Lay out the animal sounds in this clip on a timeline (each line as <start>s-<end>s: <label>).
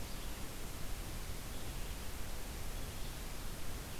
0.0s-4.0s: Red-eyed Vireo (Vireo olivaceus)